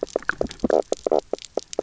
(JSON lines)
{"label": "biophony, knock croak", "recorder": "SoundTrap 300"}